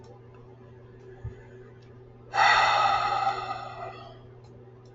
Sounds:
Sigh